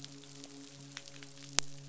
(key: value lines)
label: biophony, midshipman
recorder: SoundTrap 500